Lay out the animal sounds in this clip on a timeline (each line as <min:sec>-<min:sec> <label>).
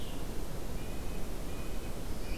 0:00.0-0:02.0 Red-breasted Nuthatch (Sitta canadensis)
0:00.0-0:02.4 Blue-headed Vireo (Vireo solitarius)